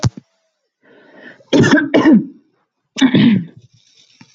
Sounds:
Throat clearing